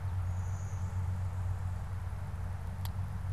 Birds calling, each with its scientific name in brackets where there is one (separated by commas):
Blue-winged Warbler (Vermivora cyanoptera)